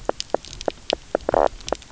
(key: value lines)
label: biophony, knock croak
recorder: SoundTrap 300